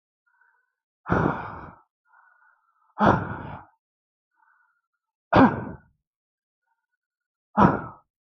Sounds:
Sigh